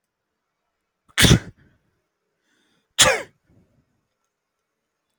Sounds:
Sneeze